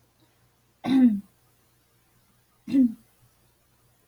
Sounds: Throat clearing